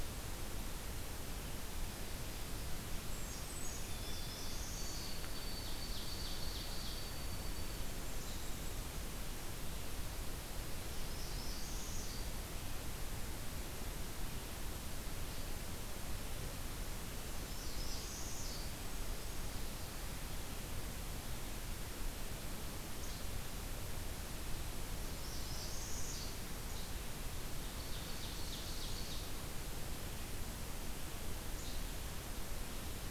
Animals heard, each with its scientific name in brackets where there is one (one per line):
Least Flycatcher (Empidonax minimus)
Northern Parula (Setophaga americana)
Ovenbird (Seiurus aurocapilla)
Blackburnian Warbler (Setophaga fusca)
White-throated Sparrow (Zonotrichia albicollis)